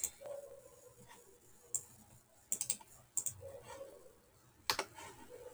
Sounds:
Sneeze